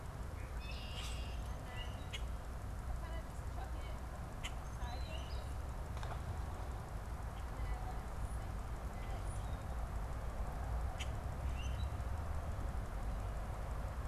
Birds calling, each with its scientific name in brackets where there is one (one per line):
Eastern Phoebe (Sayornis phoebe)
unidentified bird
Red-winged Blackbird (Agelaius phoeniceus)
Common Grackle (Quiscalus quiscula)